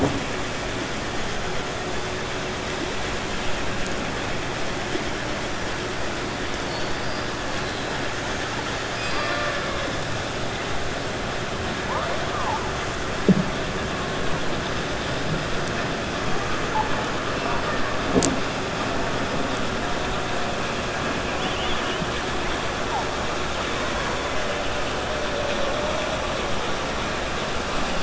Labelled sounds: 8.9	9.8	killer whale, 0.59 to 5.3 kHz
21.3	22.0	killer whale, 2.1 to 3.6 kHz

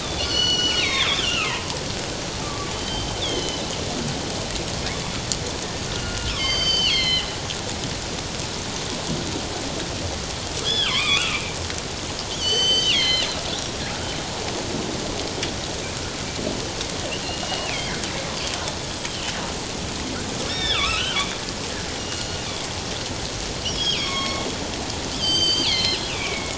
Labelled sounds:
0.0	3.7	killer whale, northern resident, G clan, 1.1 to 6.5 kHz
5.9	7.3	killer whale, northern resident, G clan, 1.3 to 6.3 kHz
10.6	11.4	killer whale, northern resident, G clan, 0.97 to 3.8 kHz
12.3	13.3	killer whale, northern resident, G clan, 1.9 to 7.8 kHz
13.6	13.8	killer whale, northern resident, G clan, 5.6 to 5.8 kHz
17.2	18.0	killer whale, northern resident, G clan, 1.9 to 3.0 kHz
19.1	19.3	killer whale, northern resident, G clan, 2.9 to 3.2 kHz
20.4	21.2	killer whale, northern resident, G clan, 1.1 to 5.6 kHz
22.0	22.4	killer whale, northern resident, G clan, 2.8 to 4.4 kHz
23.7	24.5	killer whale, northern resident, G clan, 1.0 to 5.6 kHz
25.2	26.5	killer whale, northern resident, G clan, 2.0 to 7.9 kHz

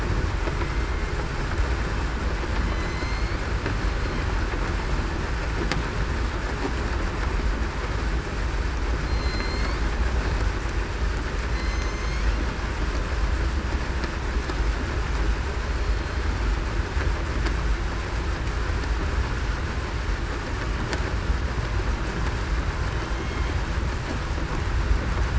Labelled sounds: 2.7	3.4	killer whale, southern resident, 2.0 to 4.6 kHz
9.1	9.8	killer whale, southern resident, 2.0 to 4.6 kHz
11.5	12.0	killer whale, southern resident, 4.1 to 4.2 kHz
15.7	16.2	killer whale, southern resident, 4.1 to 4.3 kHz

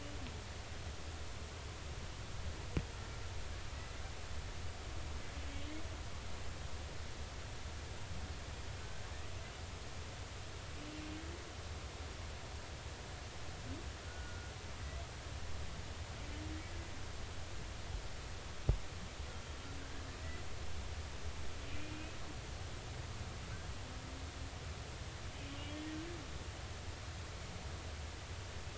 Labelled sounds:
3.7	4.0	humpback whale, 1.9 to 2.2 kHz
14.0	14.5	humpback whale, 1.3 to 1.5 kHz
21.9	22.2	humpback whale, 2.4 to 2.6 kHz

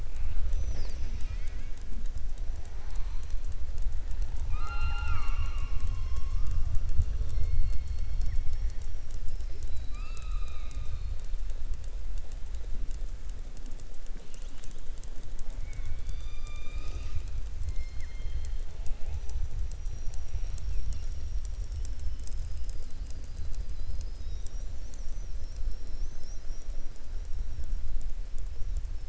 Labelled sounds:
15.4	17.3	killer whale, southern resident, 0.24 to 7.7 kHz

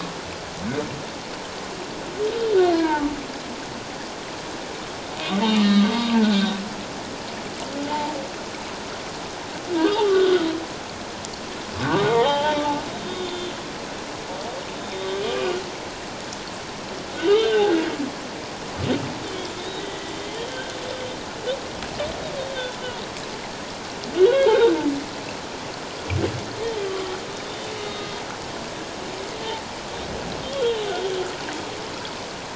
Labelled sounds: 2.7	3.1	humpback whale, 0.84 to 1.7 kHz
5.3	6.2	humpback whale, 1.1 to 3.8 kHz
7.9	8.1	humpback whale, 0.78 to 1.1 kHz
10.1	10.5	humpback whale, 1.2 to 1.6 kHz
11.8	12.6	humpback whale, 0.78 to 3.3 kHz
13.0	13.5	humpback whale, 3.5 to 3.7 kHz
14.8	15.6	humpback whale, 1.1 to 3.8 kHz
17.2	17.7	humpback whale, 2.7 to 3.8 kHz
19.3	19.8	humpback whale, 3.0 to 3.9 kHz
20.5	20.8	humpback whale, 1.4 to 1.6 kHz
22.4	22.7	humpback whale, 3.4 to 3.8 kHz
24.2	24.9	humpback whale, 1.3 to 3.9 kHz
26.8	28.1	humpback whale, 1.1 to 3.8 kHz
30.4	30.9	humpback whale, 2.9 to 3.4 kHz

